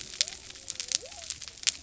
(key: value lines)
label: biophony
recorder: SoundTrap 300